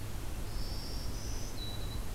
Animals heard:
Black-throated Green Warbler (Setophaga virens)

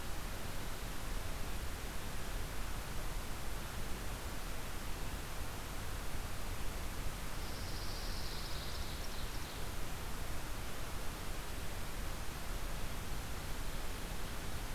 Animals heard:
Pine Warbler (Setophaga pinus), Ovenbird (Seiurus aurocapilla)

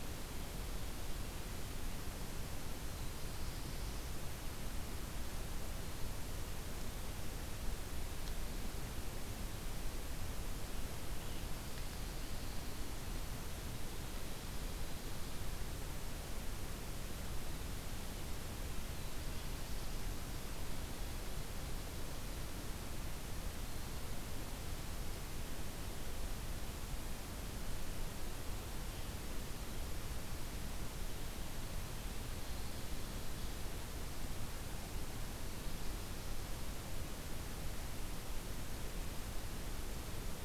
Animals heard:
Black-throated Blue Warbler (Setophaga caerulescens)

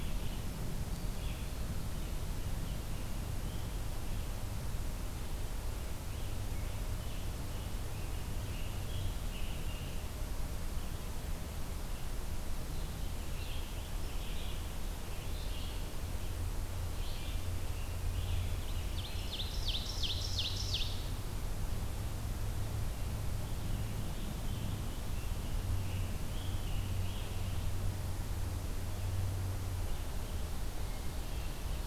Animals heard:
Ovenbird (Seiurus aurocapilla), Scarlet Tanager (Piranga olivacea), Red-eyed Vireo (Vireo olivaceus)

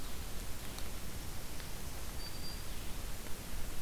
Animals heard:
Blue-headed Vireo (Vireo solitarius), Black-throated Green Warbler (Setophaga virens)

